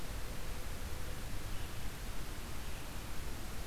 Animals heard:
forest ambience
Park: Marsh-Billings-Rockefeller National Historical Park